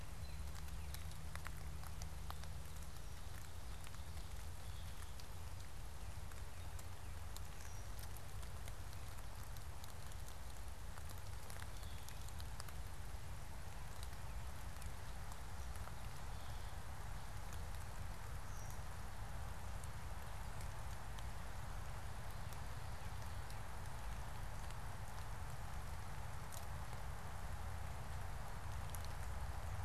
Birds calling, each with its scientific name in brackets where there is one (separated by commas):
unidentified bird